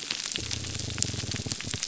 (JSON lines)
{"label": "biophony", "recorder": "SoundTrap 300"}